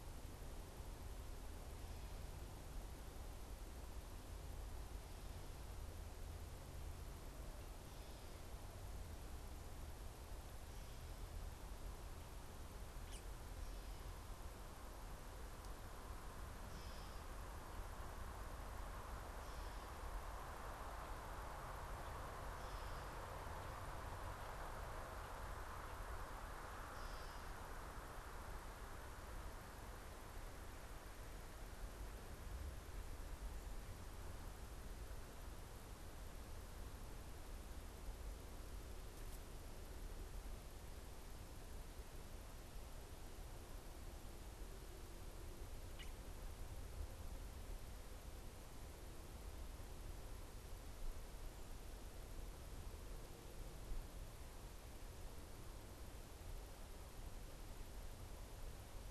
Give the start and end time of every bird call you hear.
[16.62, 17.42] Gray Catbird (Dumetella carolinensis)
[26.82, 27.52] Gray Catbird (Dumetella carolinensis)

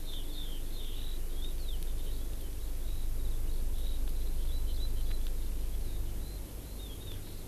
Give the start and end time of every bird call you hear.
[0.00, 7.47] Eurasian Skylark (Alauda arvensis)

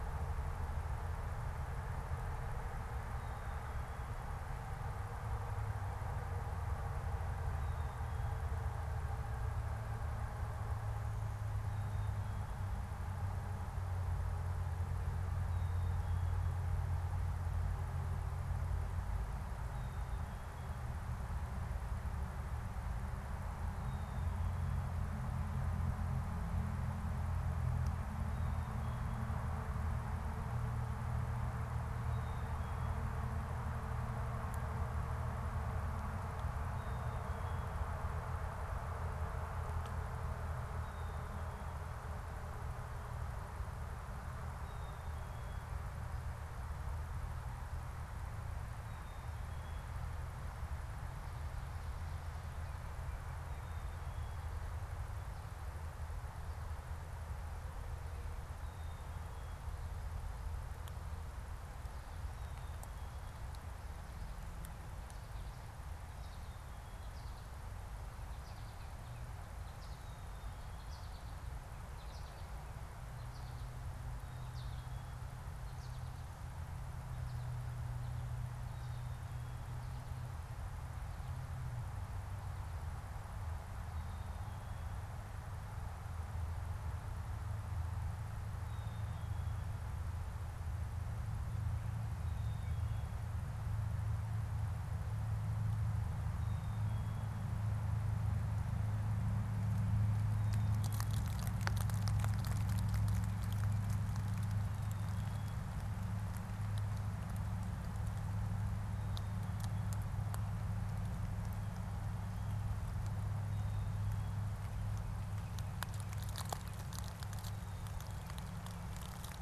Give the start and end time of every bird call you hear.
[15.28, 24.77] Black-capped Chickadee (Poecile atricapillus)
[28.27, 41.67] Black-capped Chickadee (Poecile atricapillus)
[44.38, 54.77] Black-capped Chickadee (Poecile atricapillus)
[58.58, 59.88] Black-capped Chickadee (Poecile atricapillus)
[65.28, 79.17] American Goldfinch (Spinus tristis)
[83.67, 93.17] Black-capped Chickadee (Poecile atricapillus)
[96.28, 97.47] Black-capped Chickadee (Poecile atricapillus)
[104.58, 105.67] Black-capped Chickadee (Poecile atricapillus)
[113.28, 114.58] Black-capped Chickadee (Poecile atricapillus)

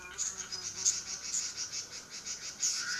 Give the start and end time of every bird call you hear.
[0.00, 2.99] Red-billed Leiothrix (Leiothrix lutea)

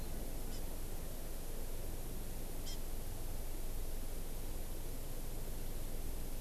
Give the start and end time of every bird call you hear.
[0.45, 0.65] Hawaii Amakihi (Chlorodrepanis virens)
[2.65, 2.75] Hawaii Amakihi (Chlorodrepanis virens)

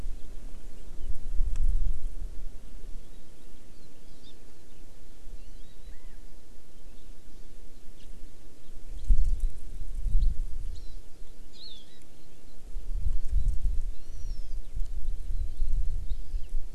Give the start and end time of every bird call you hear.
[4.19, 4.39] Hawaii Amakihi (Chlorodrepanis virens)
[5.39, 5.79] Hawaii Amakihi (Chlorodrepanis virens)
[7.99, 8.09] House Finch (Haemorhous mexicanus)
[11.59, 11.89] Hawaii Amakihi (Chlorodrepanis virens)
[13.89, 14.59] Hawaiian Hawk (Buteo solitarius)

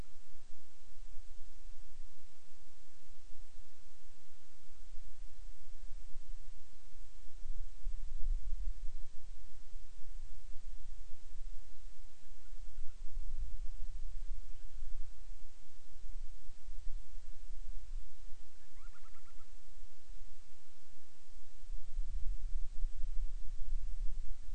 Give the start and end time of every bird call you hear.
[12.36, 15.26] Band-rumped Storm-Petrel (Hydrobates castro)
[18.56, 19.76] Band-rumped Storm-Petrel (Hydrobates castro)

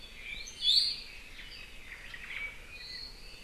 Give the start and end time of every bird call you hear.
[0.27, 0.57] Apapane (Himatione sanguinea)
[0.57, 1.17] Iiwi (Drepanis coccinea)
[1.77, 2.57] Omao (Myadestes obscurus)
[2.27, 3.37] Apapane (Himatione sanguinea)

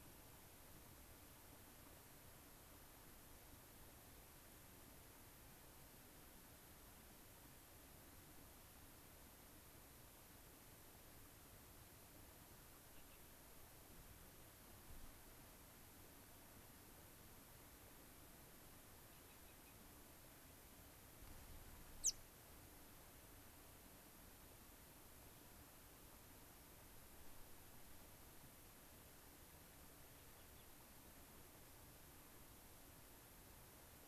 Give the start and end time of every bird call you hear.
[22.00, 22.20] White-crowned Sparrow (Zonotrichia leucophrys)
[30.30, 30.70] Gray-crowned Rosy-Finch (Leucosticte tephrocotis)

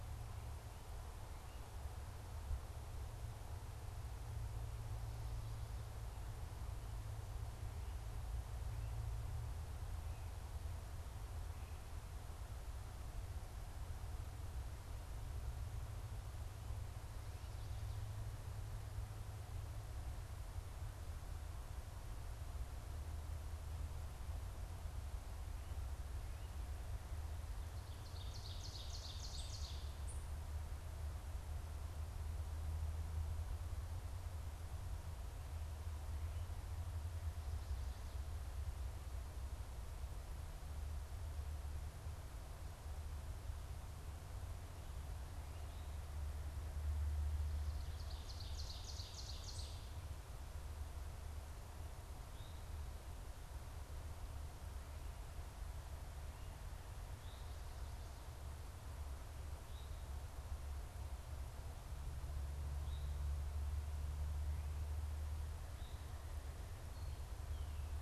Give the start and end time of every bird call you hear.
[27.72, 30.52] Ovenbird (Seiurus aurocapilla)
[47.62, 50.12] Ovenbird (Seiurus aurocapilla)
[52.12, 60.12] Eastern Towhee (Pipilo erythrophthalmus)
[62.62, 67.92] Eastern Towhee (Pipilo erythrophthalmus)

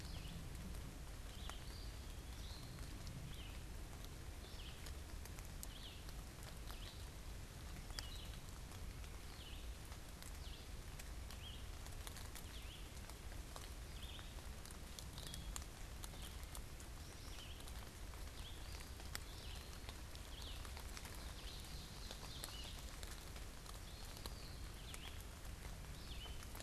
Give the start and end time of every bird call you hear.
[0.00, 26.58] Red-eyed Vireo (Vireo olivaceus)
[1.58, 2.98] Eastern Wood-Pewee (Contopus virens)
[18.58, 20.08] Eastern Wood-Pewee (Contopus virens)
[20.98, 22.88] Ovenbird (Seiurus aurocapilla)
[23.78, 24.68] Eastern Wood-Pewee (Contopus virens)

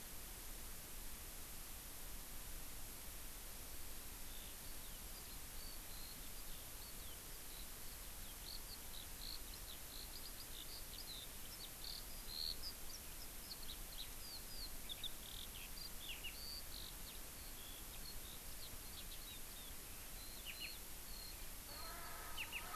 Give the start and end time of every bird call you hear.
[4.18, 22.75] Eurasian Skylark (Alauda arvensis)
[21.68, 22.75] Erckel's Francolin (Pternistis erckelii)

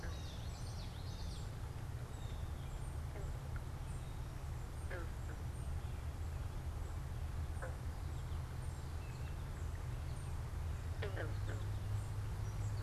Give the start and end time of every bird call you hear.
[0.00, 1.68] Common Yellowthroat (Geothlypis trichas)
[0.00, 2.88] Blue Jay (Cyanocitta cristata)
[0.00, 5.98] unidentified bird
[7.38, 12.83] unidentified bird
[7.78, 12.83] American Goldfinch (Spinus tristis)

